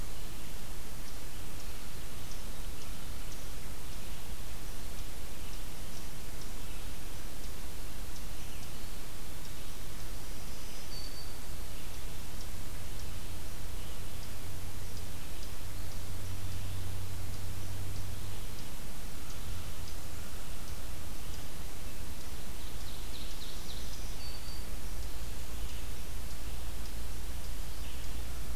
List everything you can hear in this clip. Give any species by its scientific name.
Tamias striatus, Setophaga virens, Seiurus aurocapilla, Vireo olivaceus